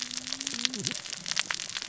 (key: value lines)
label: biophony, cascading saw
recorder: SoundTrap 600 or HydroMoth